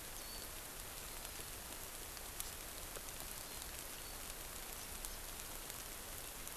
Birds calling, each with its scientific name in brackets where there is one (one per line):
Warbling White-eye (Zosterops japonicus)